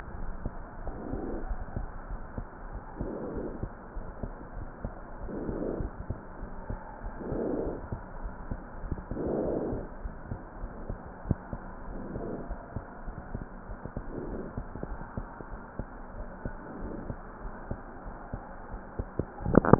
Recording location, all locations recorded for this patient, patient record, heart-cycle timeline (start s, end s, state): aortic valve (AV)
aortic valve (AV)+pulmonary valve (PV)+tricuspid valve (TV)+mitral valve (MV)
#Age: Child
#Sex: Female
#Height: 135.0 cm
#Weight: 40.5 kg
#Pregnancy status: False
#Murmur: Absent
#Murmur locations: nan
#Most audible location: nan
#Systolic murmur timing: nan
#Systolic murmur shape: nan
#Systolic murmur grading: nan
#Systolic murmur pitch: nan
#Systolic murmur quality: nan
#Diastolic murmur timing: nan
#Diastolic murmur shape: nan
#Diastolic murmur grading: nan
#Diastolic murmur pitch: nan
#Diastolic murmur quality: nan
#Outcome: Normal
#Campaign: 2015 screening campaign
0.00	12.30	unannotated
12.30	12.50	diastole
12.50	12.58	S1
12.58	12.76	systole
12.76	12.84	S2
12.84	13.06	diastole
13.06	13.16	S1
13.16	13.34	systole
13.34	13.44	S2
13.44	13.67	diastole
13.67	13.80	S1
13.80	13.93	systole
13.93	14.04	S2
14.04	14.30	diastole
14.30	14.42	S1
14.42	14.56	systole
14.56	14.66	S2
14.66	14.89	diastole
14.89	15.00	S1
15.00	15.16	systole
15.16	15.26	S2
15.26	15.49	diastole
15.49	15.62	S1
15.62	15.77	systole
15.77	15.88	S2
15.88	16.15	diastole
16.15	16.30	S1
16.30	16.43	systole
16.43	16.56	S2
16.56	16.80	diastole
16.80	16.94	S1
16.94	17.06	systole
17.06	17.20	S2
17.20	17.46	diastole
17.46	17.54	S1
17.54	17.68	systole
17.68	17.78	S2
17.78	18.08	diastole
18.08	18.16	S1
18.16	18.32	systole
18.32	18.42	S2
18.42	18.74	diastole
18.74	18.82	S1
18.82	19.00	systole
19.00	19.08	S2
19.08	19.42	diastole
19.42	19.79	unannotated